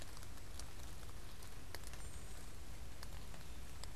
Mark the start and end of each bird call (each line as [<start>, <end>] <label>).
[1.50, 3.95] unidentified bird